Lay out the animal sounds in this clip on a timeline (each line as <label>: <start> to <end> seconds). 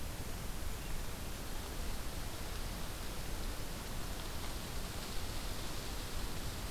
Golden-crowned Kinglet (Regulus satrapa): 0.0 to 2.0 seconds